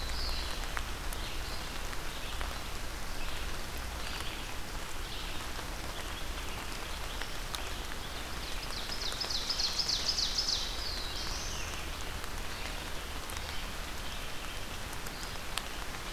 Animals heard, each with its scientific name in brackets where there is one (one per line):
Black-throated Blue Warbler (Setophaga caerulescens)
Ovenbird (Seiurus aurocapilla)
Red-eyed Vireo (Vireo olivaceus)